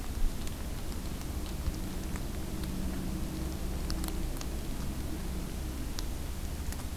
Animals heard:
forest ambience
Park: Acadia National Park